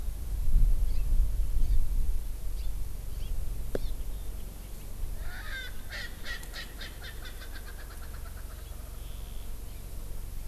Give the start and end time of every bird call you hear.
0.9s-1.0s: Hawaii Amakihi (Chlorodrepanis virens)
1.6s-1.8s: Hawaii Amakihi (Chlorodrepanis virens)
2.5s-2.7s: Hawaii Amakihi (Chlorodrepanis virens)
3.2s-3.3s: Hawaii Amakihi (Chlorodrepanis virens)
3.8s-3.9s: Hawaii Amakihi (Chlorodrepanis virens)
5.2s-9.1s: Erckel's Francolin (Pternistis erckelii)
9.6s-9.8s: Hawaii Amakihi (Chlorodrepanis virens)

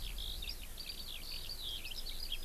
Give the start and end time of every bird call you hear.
0.0s-2.4s: Eurasian Skylark (Alauda arvensis)

